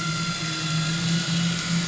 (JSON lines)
{"label": "anthrophony, boat engine", "recorder": "SoundTrap 500"}